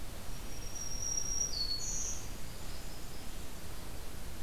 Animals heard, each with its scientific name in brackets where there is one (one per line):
Red-eyed Vireo (Vireo olivaceus)
Northern Parula (Setophaga americana)
Black-throated Green Warbler (Setophaga virens)